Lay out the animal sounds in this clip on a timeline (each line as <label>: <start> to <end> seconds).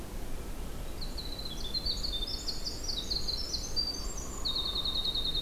Winter Wren (Troglodytes hiemalis): 0.8 to 5.4 seconds
Hairy Woodpecker (Dryobates villosus): 3.9 to 5.1 seconds